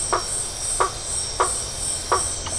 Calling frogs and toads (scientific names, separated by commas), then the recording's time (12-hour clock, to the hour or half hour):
Boana faber
8:30pm